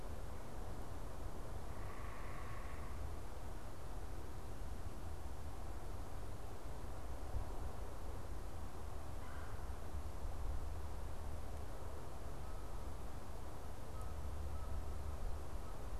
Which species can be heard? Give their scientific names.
unidentified bird, Melanerpes carolinus, Branta canadensis